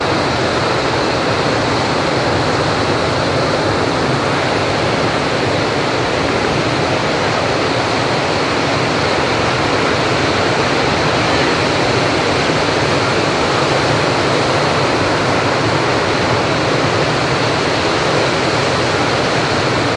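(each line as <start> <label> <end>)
0.0 Waves crashing constantly at a beach. 19.9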